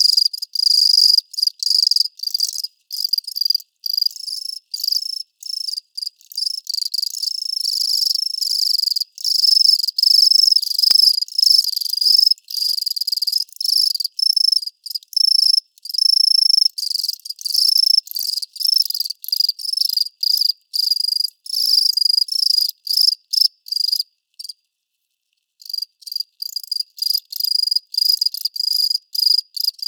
do any humans talk?
no